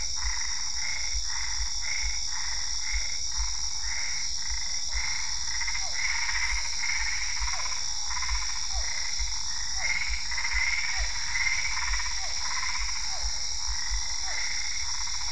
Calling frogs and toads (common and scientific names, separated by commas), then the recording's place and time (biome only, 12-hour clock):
Boana albopunctata, Physalaemus cuvieri
Cerrado, 9:00pm